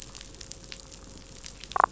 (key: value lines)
label: anthrophony, boat engine
recorder: SoundTrap 500

label: biophony, damselfish
recorder: SoundTrap 500